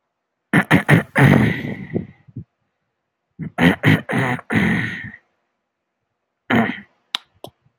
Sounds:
Throat clearing